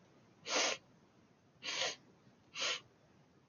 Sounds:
Sniff